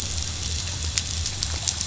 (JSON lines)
{"label": "biophony", "recorder": "SoundTrap 500"}